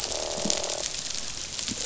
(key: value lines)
label: biophony, croak
recorder: SoundTrap 500